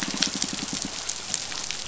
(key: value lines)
label: biophony, pulse
recorder: SoundTrap 500